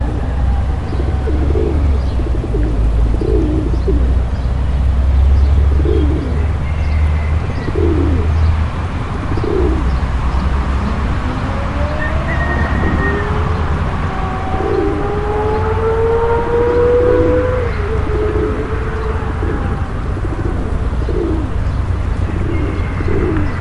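A pigeon is repeatedly cooing. 0.0 - 4.4
Deep engine rumbling in the background. 0.0 - 23.6
Traffic sounds in the background. 0.0 - 23.6
A pigeon is cooing. 5.7 - 6.5
A pigeon coos. 7.5 - 8.5
A pigeon coos. 9.1 - 10.1
A loud engine noise of a high-powered car. 11.1 - 19.4
A rooster crows loudly. 11.8 - 13.4
A pigeon coos. 14.5 - 15.4
A pigeon is repeatedly cooing. 16.4 - 23.6

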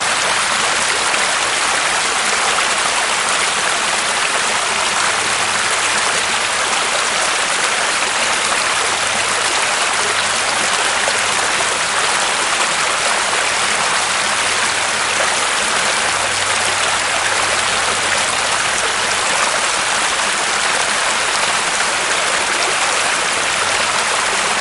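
Water flowing downstream. 0.0 - 24.6

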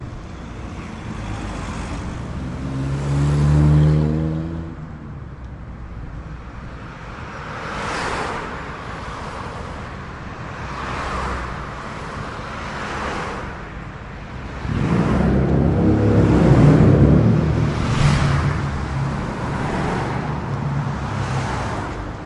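A car slows down nearby, echoing. 0.0 - 2.4
A car accelerates, creating an echoing sound nearby. 2.4 - 5.0
A car approaches quickly, echoing in the distance. 5.0 - 9.7
Cars driving nearby can be heard echoing in the distance. 9.8 - 12.0
Car approaching and echoing in the distance. 12.0 - 14.6
The engine of a car is roaring in the distance. 14.6 - 18.8
Cars are moving fast, echoing in the distance. 18.9 - 22.3

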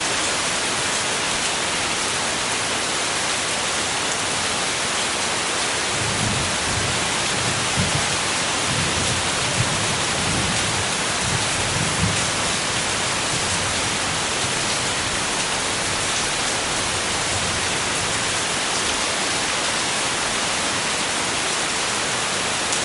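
Heavy rain is falling nearby. 0.0 - 22.8
Thunder rumbles quietly in the distance. 5.8 - 7.4

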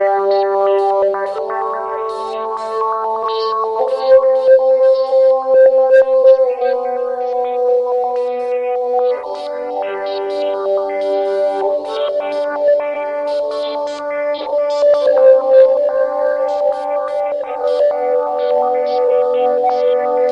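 A violin playing with a distorted, electric, futuristic effect. 0.0 - 20.3

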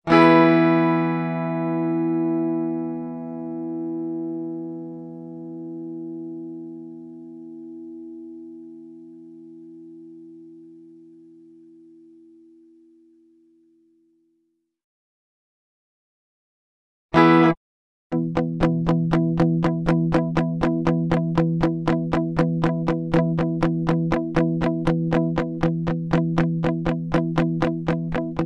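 A guitar chord is played. 0.1 - 8.3
One short, loud guitar chord. 17.0 - 17.6
A guitar plays repeatedly. 18.1 - 28.5

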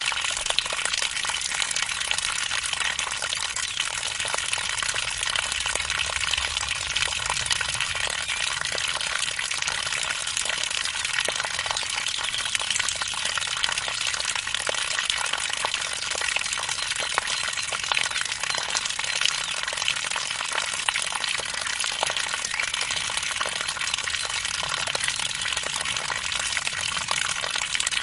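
Birds chirping in the distance. 0.0 - 28.0
Water trickling rapidly. 0.0 - 28.0

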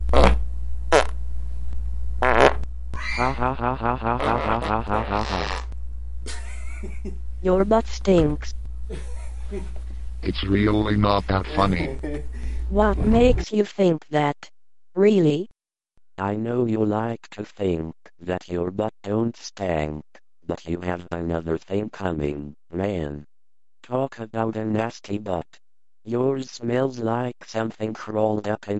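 A loud and powerful farting sound. 0.1 - 0.5
Low, continuous buzzing or humming. 0.1 - 10.3
A small, quick fart. 0.8 - 1.2
A rich and full fart is pressed out. 2.2 - 2.6
A sharp, screeching scream. 2.7 - 3.3
A robotic male voice makes a monotone comment. 3.1 - 5.7
A male voice giggles while exhaling. 6.3 - 7.1
A female-sounding robotic voice speaking monotonously. 7.4 - 8.5
A male voice giggles while exhaling. 8.7 - 10.6
A male robotic voice speaks monotonically. 10.2 - 12.2
A male voice laughing and giggling in the background. 11.3 - 13.7
A female-sounding robotic voice is speaking in English. 12.6 - 15.5
A male-sounding robotic voice is telling a story in a monotone manner. 16.2 - 25.5
A male-sounding robotic voice speaks a sentence in a very monotone manner. 26.1 - 28.8

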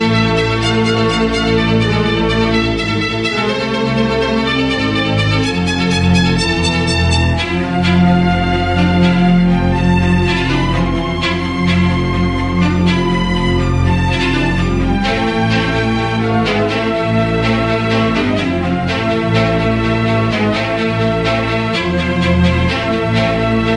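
A cinematic classical ensemble performs a rich string arrangement featuring violins, cello, and bass, creating an emotional orchestral sound suitable for a film score intro or outro. 0.0 - 23.8

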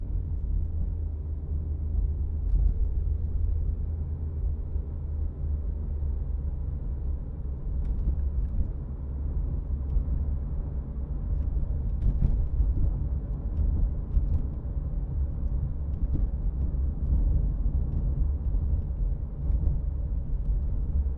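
Sounds inside a car. 0.0 - 21.2

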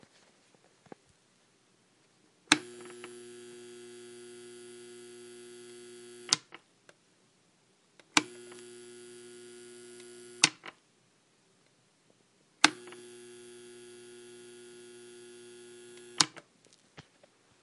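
A clicking sound is heard once. 2.5 - 2.6
A clicking sound is heard once. 6.3 - 6.4
A clicking sound is heard once. 8.1 - 8.3
A clicking sound is heard once. 10.4 - 10.5
A clicking sound is heard once. 12.6 - 12.7
A clicking sound is heard once. 16.1 - 16.3

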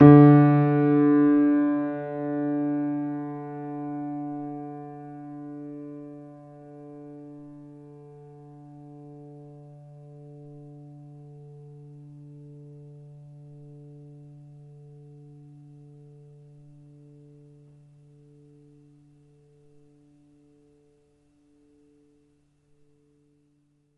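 A single piano note is sustained for a long time. 0.0 - 23.9

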